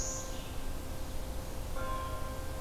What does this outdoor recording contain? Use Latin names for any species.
Vireo olivaceus